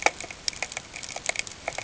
{"label": "ambient", "recorder": "HydroMoth"}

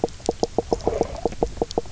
{"label": "biophony, knock croak", "recorder": "SoundTrap 300"}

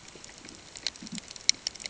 {"label": "ambient", "recorder": "HydroMoth"}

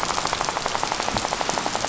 {"label": "biophony, rattle", "recorder": "SoundTrap 500"}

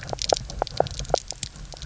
{"label": "biophony, knock croak", "recorder": "SoundTrap 300"}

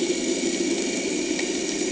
{"label": "anthrophony, boat engine", "recorder": "HydroMoth"}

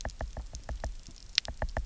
{"label": "biophony, knock", "recorder": "SoundTrap 300"}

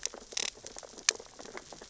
{"label": "biophony, sea urchins (Echinidae)", "recorder": "SoundTrap 600 or HydroMoth"}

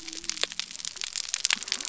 {"label": "biophony", "recorder": "SoundTrap 300"}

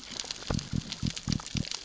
{"label": "biophony", "recorder": "SoundTrap 600 or HydroMoth"}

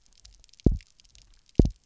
{"label": "biophony, double pulse", "recorder": "SoundTrap 300"}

